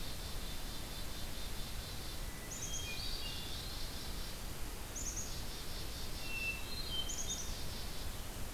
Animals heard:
Eastern Wood-Pewee (Contopus virens), Black-capped Chickadee (Poecile atricapillus), Hermit Thrush (Catharus guttatus)

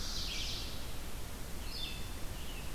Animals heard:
Ovenbird (Seiurus aurocapilla), Red-eyed Vireo (Vireo olivaceus)

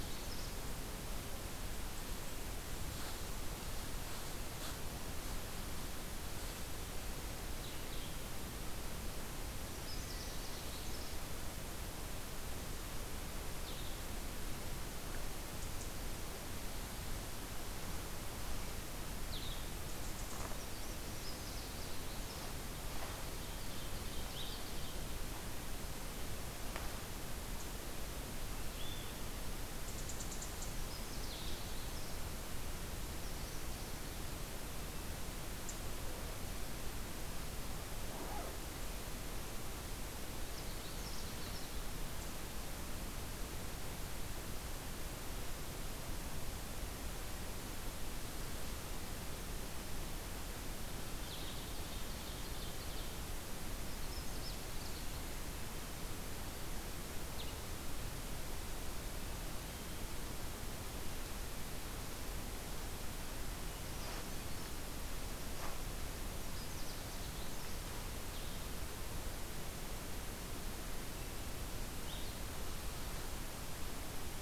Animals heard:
Eastern Wood-Pewee (Contopus virens), Blue-headed Vireo (Vireo solitarius), Ovenbird (Seiurus aurocapilla), Canada Warbler (Cardellina canadensis)

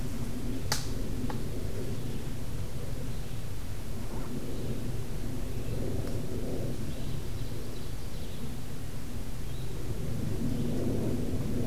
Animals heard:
Red-eyed Vireo (Vireo olivaceus), Ovenbird (Seiurus aurocapilla)

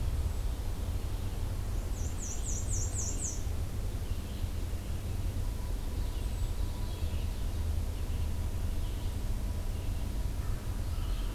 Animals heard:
Ovenbird (Seiurus aurocapilla), Hermit Thrush (Catharus guttatus), American Crow (Corvus brachyrhynchos), Red-eyed Vireo (Vireo olivaceus), Black-and-white Warbler (Mniotilta varia)

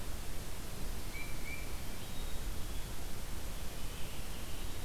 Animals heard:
Black-capped Chickadee (Poecile atricapillus), Tufted Titmouse (Baeolophus bicolor)

